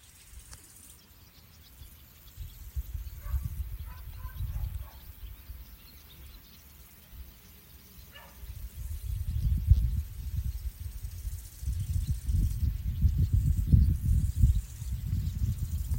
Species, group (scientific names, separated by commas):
Chorthippus biguttulus, Orthoptera